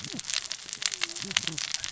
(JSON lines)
{"label": "biophony, cascading saw", "recorder": "SoundTrap 600 or HydroMoth"}